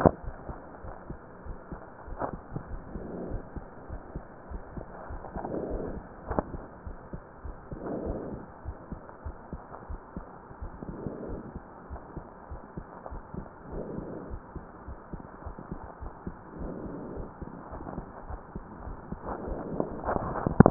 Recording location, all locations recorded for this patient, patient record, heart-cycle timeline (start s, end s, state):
aortic valve (AV)
aortic valve (AV)+pulmonary valve (PV)+tricuspid valve (TV)+mitral valve (MV)
#Age: Child
#Sex: Male
#Height: 133.0 cm
#Weight: 33.1 kg
#Pregnancy status: False
#Murmur: Absent
#Murmur locations: nan
#Most audible location: nan
#Systolic murmur timing: nan
#Systolic murmur shape: nan
#Systolic murmur grading: nan
#Systolic murmur pitch: nan
#Systolic murmur quality: nan
#Diastolic murmur timing: nan
#Diastolic murmur shape: nan
#Diastolic murmur grading: nan
#Diastolic murmur pitch: nan
#Diastolic murmur quality: nan
#Outcome: Normal
#Campaign: 2015 screening campaign
0.00	0.54	unannotated
0.54	0.80	diastole
0.80	0.94	S1
0.94	1.06	systole
1.06	1.16	S2
1.16	1.44	diastole
1.44	1.58	S1
1.58	1.70	systole
1.70	1.78	S2
1.78	2.06	diastole
2.06	2.20	S1
2.20	2.32	systole
2.32	2.40	S2
2.40	2.68	diastole
2.68	2.82	S1
2.82	2.94	systole
2.94	3.04	S2
3.04	3.24	diastole
3.24	3.42	S1
3.42	3.56	systole
3.56	3.66	S2
3.66	3.90	diastole
3.90	4.00	S1
4.00	4.14	systole
4.14	4.22	S2
4.22	4.50	diastole
4.50	4.64	S1
4.64	4.76	systole
4.76	4.86	S2
4.86	5.10	diastole
5.10	5.22	S1
5.22	5.34	systole
5.34	5.44	S2
5.44	5.64	diastole
5.64	5.82	S1
5.82	5.90	systole
5.90	6.02	S2
6.02	6.26	diastole
6.26	6.44	S1
6.44	6.52	systole
6.52	6.64	S2
6.64	6.86	diastole
6.86	6.96	S1
6.96	7.14	systole
7.14	7.20	S2
7.20	7.44	diastole
7.44	7.58	S1
7.58	7.72	systole
7.72	7.80	S2
7.80	8.04	diastole
8.04	8.22	S1
8.22	8.30	systole
8.30	8.42	S2
8.42	8.66	diastole
8.66	8.76	S1
8.76	8.88	systole
8.88	8.98	S2
8.98	9.25	diastole
9.25	9.36	S1
9.36	9.52	systole
9.52	9.60	S2
9.60	9.88	diastole
9.88	10.00	S1
10.00	10.16	systole
10.16	10.26	S2
10.26	10.62	diastole
10.62	10.72	S1
10.72	10.86	systole
10.86	11.00	S2
11.00	11.26	diastole
11.26	11.42	S1
11.42	11.56	systole
11.56	11.62	S2
11.62	11.92	diastole
11.92	12.00	S1
12.00	12.16	systole
12.16	12.24	S2
12.24	12.50	diastole
12.50	12.60	S1
12.60	12.76	systole
12.76	12.84	S2
12.84	13.12	diastole
13.12	13.22	S1
13.22	13.34	systole
13.34	13.44	S2
13.44	13.71	diastole
13.71	13.85	S1
13.85	13.96	systole
13.96	14.06	S2
14.06	14.30	diastole
14.30	14.42	S1
14.42	14.54	systole
14.54	14.62	S2
14.62	14.88	diastole
14.88	14.98	S1
14.98	15.11	systole
15.11	15.20	S2
15.20	15.44	diastole
15.44	15.56	S1
15.56	15.69	systole
15.69	15.80	S2
15.80	16.02	diastole
16.02	16.14	S1
16.14	16.25	systole
16.25	16.34	S2
16.34	16.58	diastole
16.58	20.70	unannotated